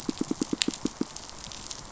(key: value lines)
label: biophony, pulse
recorder: SoundTrap 500